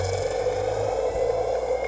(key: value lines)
label: biophony
recorder: HydroMoth